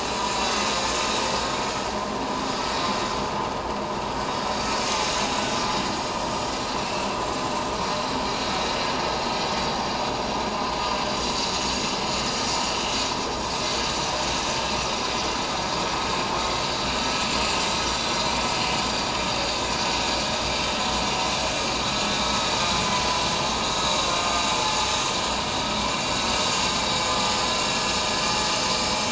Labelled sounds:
6.7	7.1	vessel noise, 2.6 to 2.8 kHz
9.6	9.9	vessel noise, 4.6 to 4.7 kHz
12.2	12.5	vessel noise, 6.0 to 6.2 kHz
22.1	22.4	vessel noise, 3.6 to 3.8 kHz
27.4	27.7	vessel noise, 1.3 to 1.4 kHz

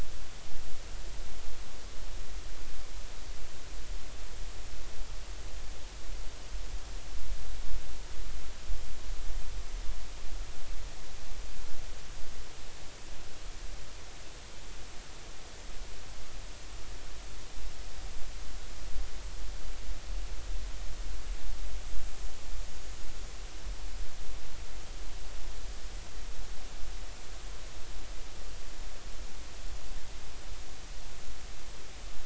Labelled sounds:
22.6	22.9	small unidentified odontocete, 6.5 to 6.7 kHz

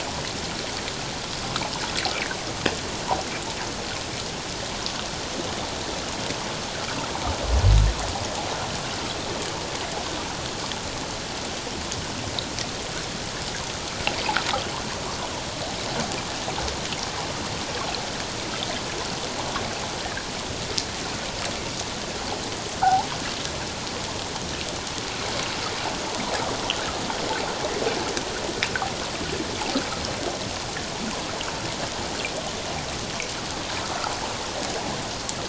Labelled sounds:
20.0	20.3	water noise, 1.5 to 1.9 kHz

